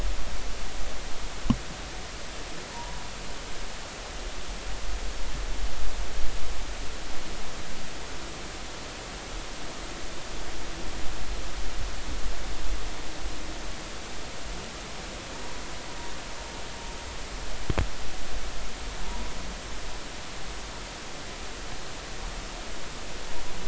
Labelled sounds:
2.7	3.0	humpback whale, 0.86 to 1.0 kHz
19.0	19.3	humpback whale, 0.86 to 1.1 kHz

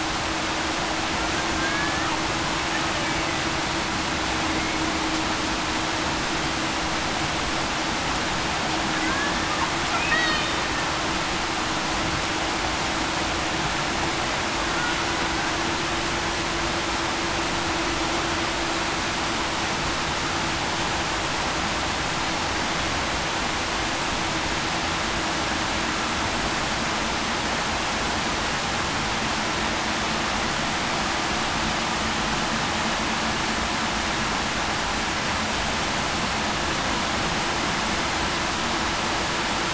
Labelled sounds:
1.6	2.1	killer whale, Bigg's (transient), 1.6 to 1.9 kHz
10.2	10.6	killer whale, Bigg's (transient), 3.6 to 4.5 kHz

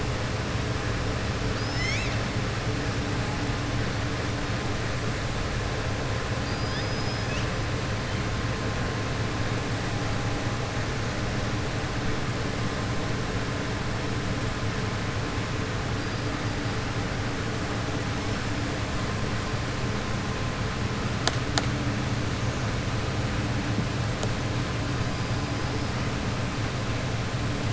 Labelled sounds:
6.4	7.5	killer whale, southern resident, 3.3 to 6.4 kHz

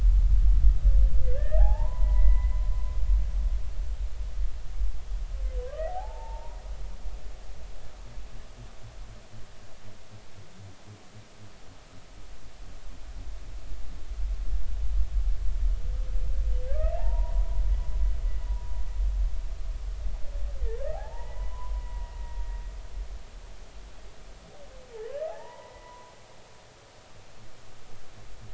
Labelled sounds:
1.2	2.6	humpback whale, 0.80 to 2.1 kHz
5.9	6.6	humpback whale, 0.80 to 0.99 kHz
16.7	17.6	humpback whale, 0.80 to 2.8 kHz
18.5	18.7	humpback whale, 0.93 to 0.99 kHz
20.9	22.2	humpback whale, 0.80 to 2.0 kHz
25.3	26.9	humpback whale, 0.80 to 2.0 kHz

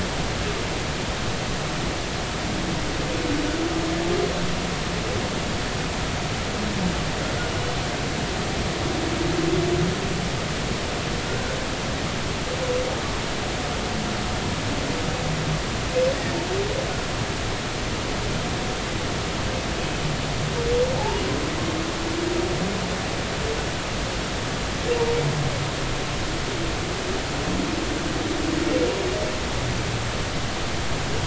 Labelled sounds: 20.9	21.2	humpback whale, 0.80 to 1.0 kHz

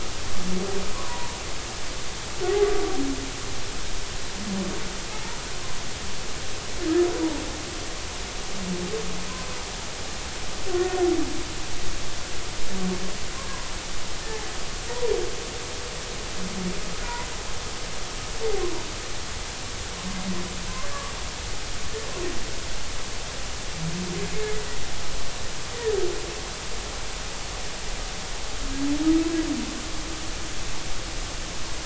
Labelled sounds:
0.9	1.4	humpback whale, 0.86 to 1.2 kHz
5.1	5.4	humpback whale, 0.83 to 1.0 kHz
10.7	11.0	humpback whale, 1.3 to 1.5 kHz
17.0	17.3	humpback whale, 0.90 to 1.0 kHz

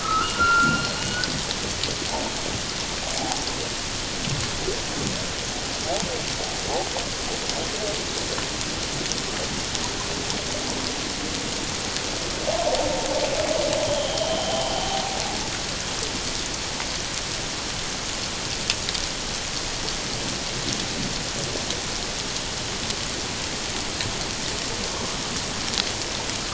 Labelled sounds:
0.0	1.3	humpback whale, 1.0 to 4.3 kHz

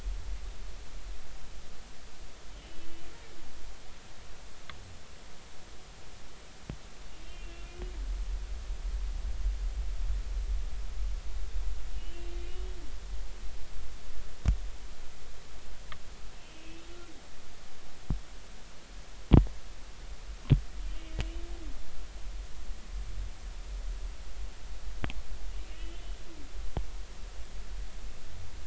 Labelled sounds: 7.3	7.7	humpback whale, 2.7 to 2.8 kHz
12.0	12.2	humpback whale, 2.8 to 3.1 kHz
16.4	16.9	humpback whale, 2.4 to 2.7 kHz
25.7	26.0	humpback whale, 2.8 to 3.1 kHz

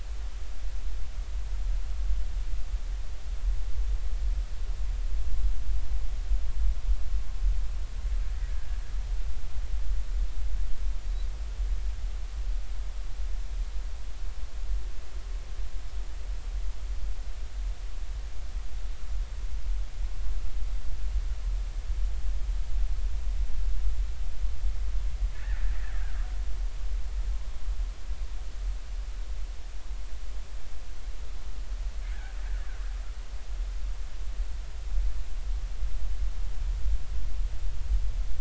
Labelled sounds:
25.3	26.2	killer whale, Bigg's (transient), 1.3 to 1.9 kHz

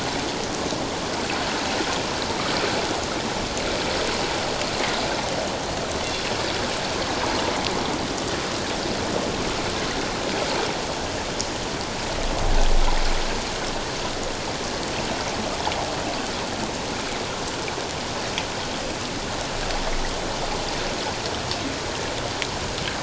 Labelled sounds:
6.0	6.3	killer whale, northern resident, G clan, call N24ii, 3.3 to 3.5 kHz

